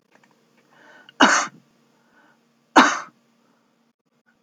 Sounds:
Cough